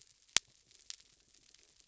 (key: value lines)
label: biophony
recorder: SoundTrap 300